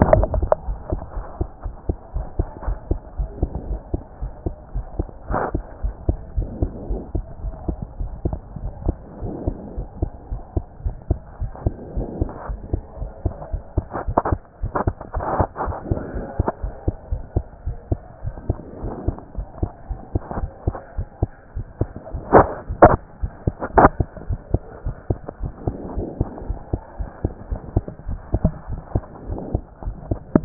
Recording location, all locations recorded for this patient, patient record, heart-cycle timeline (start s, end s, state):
pulmonary valve (PV)
aortic valve (AV)+pulmonary valve (PV)+tricuspid valve (TV)+mitral valve (MV)
#Age: Child
#Sex: Male
#Height: 124.0 cm
#Weight: 23.6 kg
#Pregnancy status: False
#Murmur: Absent
#Murmur locations: nan
#Most audible location: nan
#Systolic murmur timing: nan
#Systolic murmur shape: nan
#Systolic murmur grading: nan
#Systolic murmur pitch: nan
#Systolic murmur quality: nan
#Diastolic murmur timing: nan
#Diastolic murmur shape: nan
#Diastolic murmur grading: nan
#Diastolic murmur pitch: nan
#Diastolic murmur quality: nan
#Outcome: Normal
#Campaign: 2014 screening campaign
0.00	0.68	unannotated
0.68	0.78	S1
0.78	0.92	systole
0.92	1.00	S2
1.00	1.16	diastole
1.16	1.24	S1
1.24	1.38	systole
1.38	1.48	S2
1.48	1.64	diastole
1.64	1.74	S1
1.74	1.88	systole
1.88	1.96	S2
1.96	2.14	diastole
2.14	2.26	S1
2.26	2.38	systole
2.38	2.48	S2
2.48	2.66	diastole
2.66	2.78	S1
2.78	2.90	systole
2.90	3.00	S2
3.00	3.18	diastole
3.18	3.30	S1
3.30	3.40	systole
3.40	3.50	S2
3.50	3.68	diastole
3.68	3.80	S1
3.80	3.92	systole
3.92	4.02	S2
4.02	4.22	diastole
4.22	4.32	S1
4.32	4.44	systole
4.44	4.54	S2
4.54	4.74	diastole
4.74	4.86	S1
4.86	4.98	systole
4.98	5.06	S2
5.06	5.30	diastole
5.30	5.42	S1
5.42	5.54	systole
5.54	5.64	S2
5.64	5.82	diastole
5.82	5.94	S1
5.94	6.06	systole
6.06	6.18	S2
6.18	6.36	diastole
6.36	6.48	S1
6.48	6.60	systole
6.60	6.70	S2
6.70	6.88	diastole
6.88	7.02	S1
7.02	7.14	systole
7.14	7.24	S2
7.24	7.44	diastole
7.44	7.54	S1
7.54	7.68	systole
7.68	7.76	S2
7.76	8.00	diastole
8.00	8.10	S1
8.10	8.24	systole
8.24	8.36	S2
8.36	8.62	diastole
8.62	8.72	S1
8.72	8.86	systole
8.86	8.96	S2
8.96	9.22	diastole
9.22	9.34	S1
9.34	9.46	systole
9.46	9.56	S2
9.56	9.76	diastole
9.76	9.88	S1
9.88	10.00	systole
10.00	10.10	S2
10.10	10.30	diastole
10.30	10.42	S1
10.42	10.54	systole
10.54	10.64	S2
10.64	10.84	diastole
10.84	10.96	S1
10.96	11.08	systole
11.08	11.18	S2
11.18	11.40	diastole
11.40	11.52	S1
11.52	11.64	systole
11.64	11.74	S2
11.74	11.96	diastole
11.96	12.08	S1
12.08	12.20	systole
12.20	12.30	S2
12.30	12.48	diastole
12.48	12.60	S1
12.60	12.72	systole
12.72	12.82	S2
12.82	13.00	diastole
13.00	13.10	S1
13.10	13.24	systole
13.24	13.34	S2
13.34	13.52	diastole
13.52	13.62	S1
13.62	13.76	systole
13.76	13.86	S2
13.86	14.06	diastole
14.06	14.16	S1
14.16	14.30	systole
14.30	14.40	S2
14.40	14.62	diastole
14.62	14.72	S1
14.72	14.86	systole
14.86	14.94	S2
14.94	15.14	diastole
15.14	15.26	S1
15.26	15.38	systole
15.38	15.48	S2
15.48	15.64	diastole
15.64	15.76	S1
15.76	15.90	systole
15.90	16.00	S2
16.00	16.14	diastole
16.14	16.26	S1
16.26	16.38	systole
16.38	16.48	S2
16.48	16.62	diastole
16.62	16.74	S1
16.74	16.86	systole
16.86	16.96	S2
16.96	17.10	diastole
17.10	17.22	S1
17.22	17.34	systole
17.34	17.44	S2
17.44	17.66	diastole
17.66	17.76	S1
17.76	17.90	systole
17.90	18.00	S2
18.00	18.24	diastole
18.24	18.34	S1
18.34	18.48	systole
18.48	18.58	S2
18.58	18.82	diastole
18.82	18.94	S1
18.94	19.06	systole
19.06	19.16	S2
19.16	19.36	diastole
19.36	19.46	S1
19.46	19.60	systole
19.60	19.70	S2
19.70	19.90	diastole
19.90	20.00	S1
20.00	20.14	systole
20.14	20.22	S2
20.22	20.38	diastole
20.38	20.50	S1
20.50	20.66	systole
20.66	20.76	S2
20.76	20.96	diastole
20.96	21.08	S1
21.08	21.20	systole
21.20	21.30	S2
21.30	21.56	diastole
21.56	21.66	S1
21.66	21.80	systole
21.80	21.90	S2
21.90	22.14	diastole
22.14	30.45	unannotated